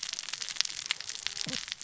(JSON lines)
{"label": "biophony, cascading saw", "recorder": "SoundTrap 600 or HydroMoth"}